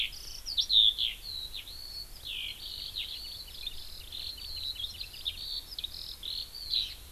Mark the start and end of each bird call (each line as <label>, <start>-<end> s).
Eurasian Skylark (Alauda arvensis), 0.0-7.0 s
Hawaii Amakihi (Chlorodrepanis virens), 4.2-5.3 s